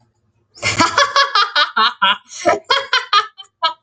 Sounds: Laughter